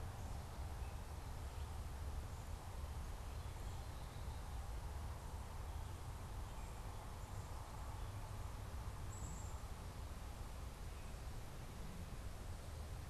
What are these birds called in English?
Black-capped Chickadee